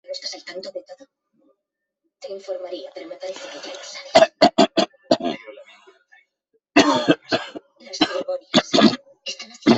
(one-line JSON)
{"expert_labels": [{"quality": "good", "cough_type": "unknown", "dyspnea": false, "wheezing": false, "stridor": false, "choking": false, "congestion": false, "nothing": true, "diagnosis": "upper respiratory tract infection", "severity": "mild"}], "age": 56, "gender": "male", "respiratory_condition": true, "fever_muscle_pain": true, "status": "COVID-19"}